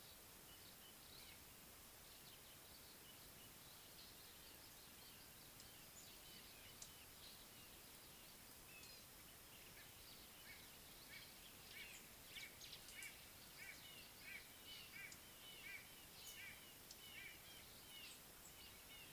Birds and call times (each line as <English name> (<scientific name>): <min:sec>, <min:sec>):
White-bellied Go-away-bird (Corythaixoides leucogaster): 0:13.7
Red-fronted Barbet (Tricholaema diademata): 0:15.6